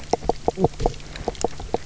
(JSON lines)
{"label": "biophony, knock croak", "recorder": "SoundTrap 300"}